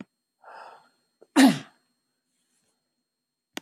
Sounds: Sneeze